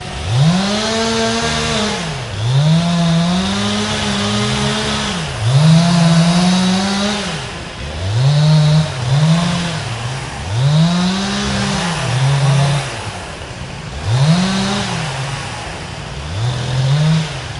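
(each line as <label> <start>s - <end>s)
A loud chainsaw cuts wood nearby while quieter ones can be heard in the distant forest. 0.0s - 17.6s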